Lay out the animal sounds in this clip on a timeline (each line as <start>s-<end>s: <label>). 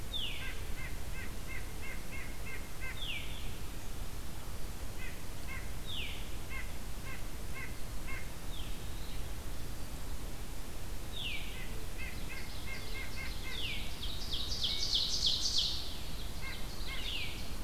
0.0s-0.4s: Veery (Catharus fuscescens)
0.3s-3.0s: White-breasted Nuthatch (Sitta carolinensis)
2.9s-3.3s: Veery (Catharus fuscescens)
4.9s-17.3s: White-breasted Nuthatch (Sitta carolinensis)
5.8s-6.2s: Veery (Catharus fuscescens)
8.4s-8.8s: Veery (Catharus fuscescens)
11.0s-11.5s: Veery (Catharus fuscescens)
11.8s-17.6s: Ovenbird (Seiurus aurocapilla)